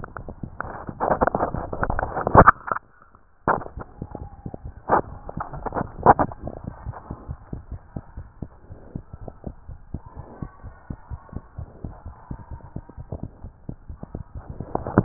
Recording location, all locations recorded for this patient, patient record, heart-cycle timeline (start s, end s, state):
tricuspid valve (TV)
aortic valve (AV)+pulmonary valve (PV)+tricuspid valve (TV)+mitral valve (MV)
#Age: Infant
#Sex: Male
#Height: 87.0 cm
#Weight: 12.5 kg
#Pregnancy status: False
#Murmur: Absent
#Murmur locations: nan
#Most audible location: nan
#Systolic murmur timing: nan
#Systolic murmur shape: nan
#Systolic murmur grading: nan
#Systolic murmur pitch: nan
#Systolic murmur quality: nan
#Diastolic murmur timing: nan
#Diastolic murmur shape: nan
#Diastolic murmur grading: nan
#Diastolic murmur pitch: nan
#Diastolic murmur quality: nan
#Outcome: Abnormal
#Campaign: 2015 screening campaign
0.00	6.68	unannotated
6.68	6.85	diastole
6.85	6.94	S1
6.94	7.06	systole
7.06	7.15	S2
7.15	7.24	diastole
7.24	7.35	S1
7.35	7.49	systole
7.49	7.57	S2
7.57	7.68	diastole
7.68	7.79	S1
7.79	7.92	systole
7.92	8.03	S2
8.03	8.14	diastole
8.14	8.26	S1
8.26	8.38	systole
8.38	8.50	S2
8.50	8.72	diastole
8.72	8.82	S1
8.82	8.92	systole
8.92	9.04	S2
9.04	9.22	diastole
9.22	9.34	S1
9.34	9.44	systole
9.44	9.54	S2
9.54	9.68	diastole
9.68	9.78	S1
9.78	9.90	systole
9.90	10.02	S2
10.02	10.18	diastole
10.18	10.26	S1
10.26	10.38	systole
10.38	10.50	S2
10.50	10.64	diastole
10.64	10.74	S1
10.74	10.86	systole
10.86	10.98	S2
10.98	11.12	diastole
11.12	11.20	S1
11.20	11.32	systole
11.32	11.44	S2
11.44	11.58	diastole
11.58	11.70	S1
11.70	11.82	systole
11.82	11.92	S2
11.92	12.06	diastole
12.06	12.16	S1
12.16	12.26	systole
12.26	12.38	S2
12.38	12.52	diastole
12.52	12.64	S1
12.64	12.74	systole
12.74	12.84	S2
12.84	12.98	diastole
12.98	15.04	unannotated